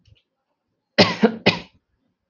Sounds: Cough